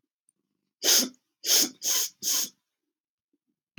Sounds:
Sniff